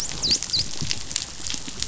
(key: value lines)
label: biophony, dolphin
recorder: SoundTrap 500